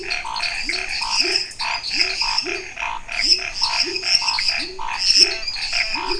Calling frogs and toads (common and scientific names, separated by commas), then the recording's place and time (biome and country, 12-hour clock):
Chaco tree frog (Boana raniceps), lesser tree frog (Dendropsophus minutus), pepper frog (Leptodactylus labyrinthicus), Pithecopus azureus, Scinax fuscovarius
Cerrado, Brazil, 9:15pm